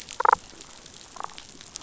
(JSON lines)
{"label": "biophony, damselfish", "recorder": "SoundTrap 500"}